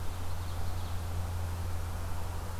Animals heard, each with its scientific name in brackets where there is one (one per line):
Ovenbird (Seiurus aurocapilla)